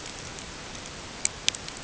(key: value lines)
label: ambient
recorder: HydroMoth